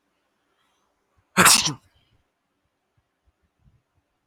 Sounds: Sneeze